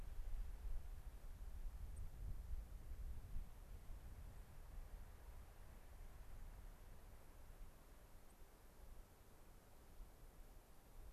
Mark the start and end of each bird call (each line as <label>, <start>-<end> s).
White-crowned Sparrow (Zonotrichia leucophrys), 1.8-2.1 s
White-crowned Sparrow (Zonotrichia leucophrys), 8.2-8.3 s